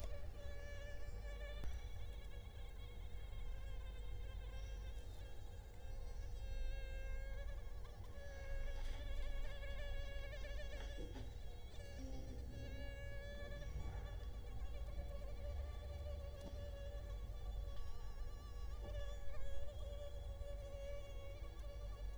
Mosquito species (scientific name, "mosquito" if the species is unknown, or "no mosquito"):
Culex quinquefasciatus